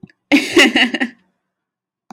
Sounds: Laughter